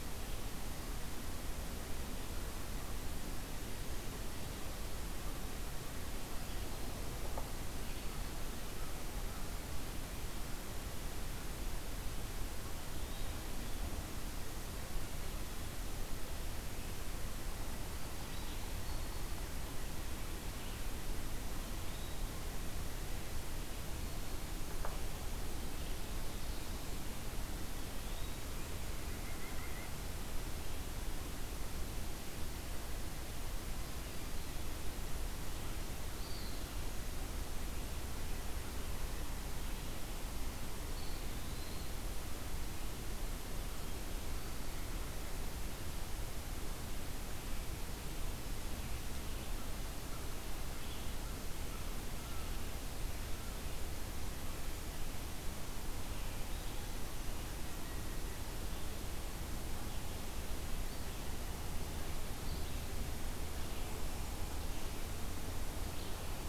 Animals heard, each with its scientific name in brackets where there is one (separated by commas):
White-breasted Nuthatch (Sitta carolinensis), Eastern Wood-Pewee (Contopus virens)